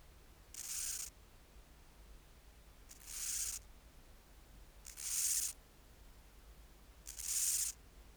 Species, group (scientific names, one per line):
Chorthippus dichrous
Orthoptera